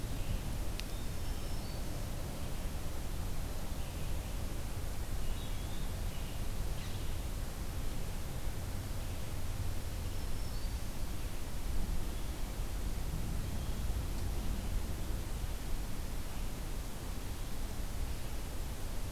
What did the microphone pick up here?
Black-throated Green Warbler, Eastern Wood-Pewee